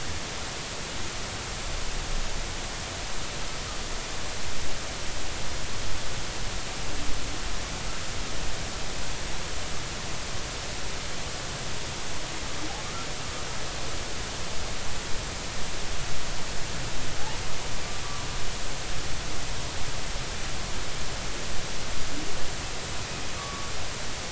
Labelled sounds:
23.4	23.7	humpback whale, 1.1 to 1.2 kHz

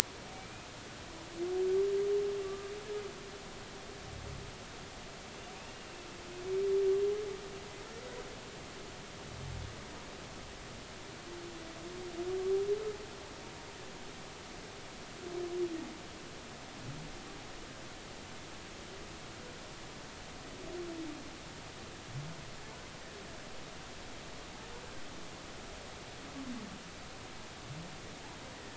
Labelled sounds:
0.3	0.7	humpback whale, 2.2 to 2.6 kHz
2.4	2.7	humpback whale, 1.1 to 1.2 kHz

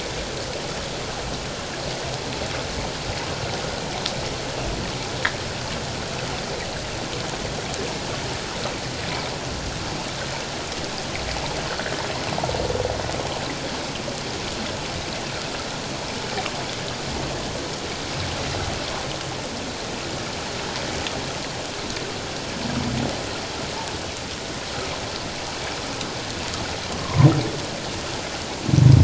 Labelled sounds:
26.9	27.3	humpback whale, 0.91 to 1.2 kHz

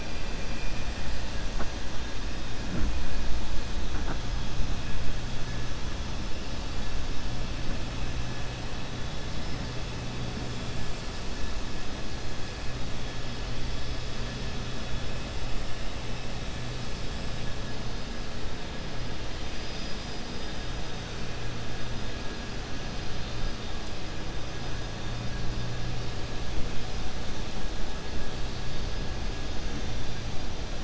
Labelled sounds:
0.4	0.9	vessel noise, 1.6 to 3.3 kHz

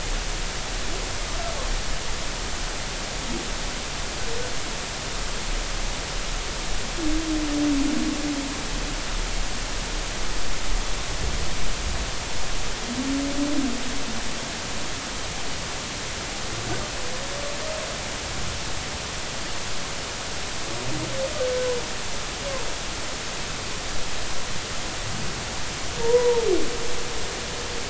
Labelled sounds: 26.0	26.5	humpback whale, 0.86 to 1.0 kHz

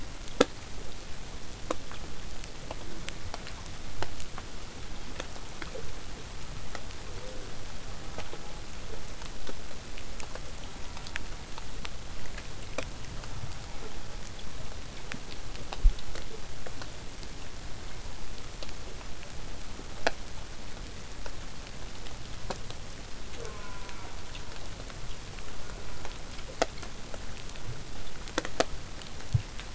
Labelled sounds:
2.8	3.6	killer whale, southern resident, J pod, call S04, 0.15 to 1.3 kHz
7.9	8.6	killer whale, southern resident, J pod, call S04, 0.19 to 1.5 kHz
10.6	11.3	killer whale, southern resident, J pod, call S04, 0.46 to 1.5 kHz
23.3	24.3	killer whale, southern resident, J pod, call S04, 0.23 to 3.1 kHz
25.6	26.2	killer whale, southern resident, J pod, call S04, 0.23 to 1.6 kHz

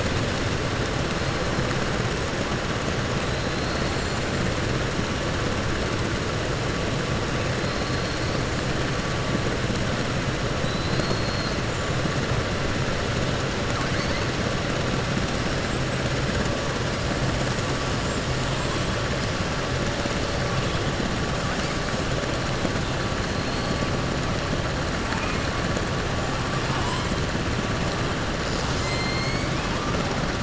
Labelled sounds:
10.6	11.6	killer whale, 3.4 to 4.9 kHz
28.8	29.9	killer whale, 1.0 to 3.4 kHz

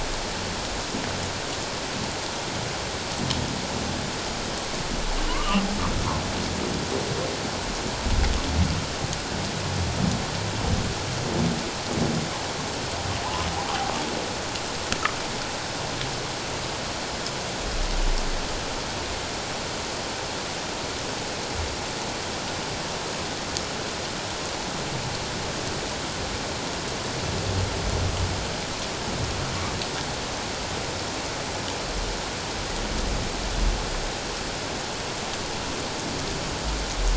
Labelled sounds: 5.3	5.6	humpback whale, 0.94 to 1.3 kHz

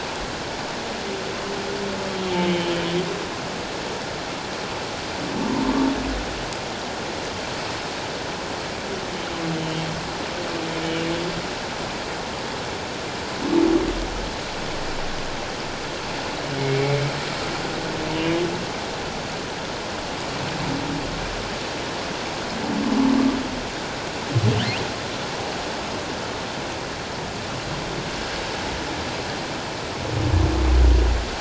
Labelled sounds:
2.1	3.0	humpback whale, 2.8 to 3.2 kHz
18.1	18.5	humpback whale, 2.7 to 3.0 kHz

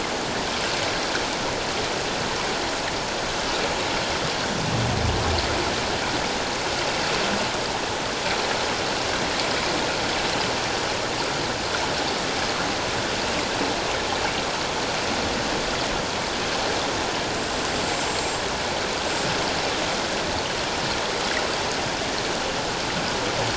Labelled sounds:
18.1	18.3	killer whale, 7.4 to 7.7 kHz

